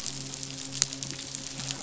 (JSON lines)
{"label": "biophony, midshipman", "recorder": "SoundTrap 500"}